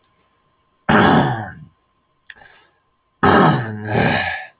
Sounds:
Throat clearing